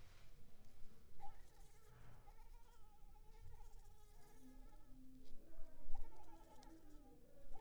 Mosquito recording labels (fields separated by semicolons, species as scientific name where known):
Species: Anopheles arabiensis; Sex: female; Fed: unfed; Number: one; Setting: cup